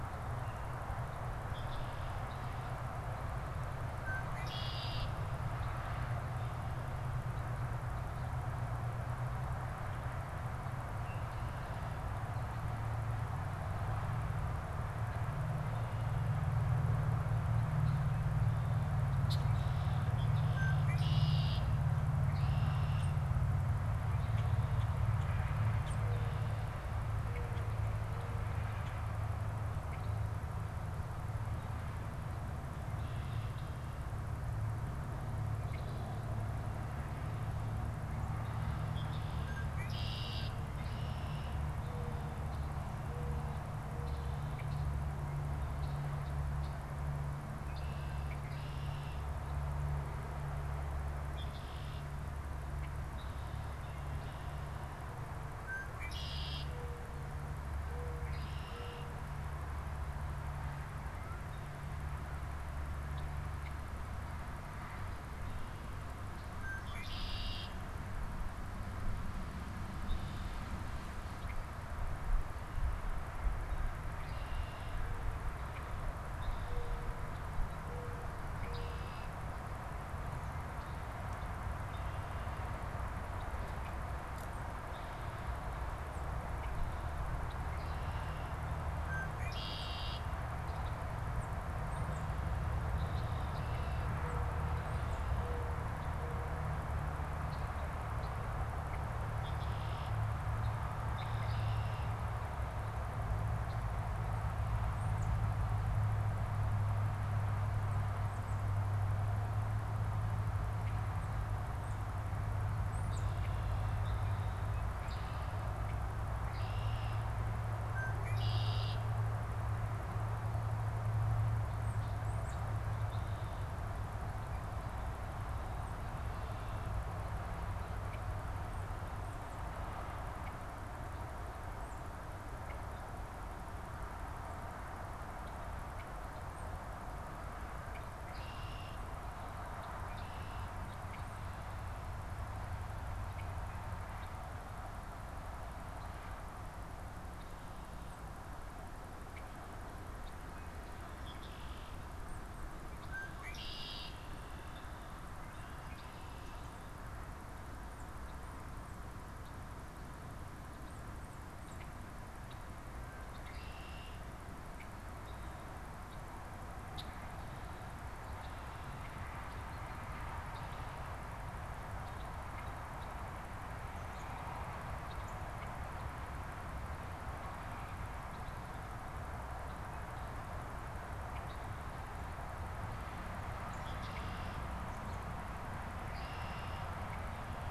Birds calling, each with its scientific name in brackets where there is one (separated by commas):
American Robin (Turdus migratorius), Tufted Titmouse (Baeolophus bicolor), Common Grackle (Quiscalus quiscula), unidentified bird, Mourning Dove (Zenaida macroura), Red-winged Blackbird (Agelaius phoeniceus)